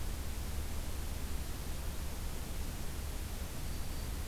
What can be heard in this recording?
Black-throated Green Warbler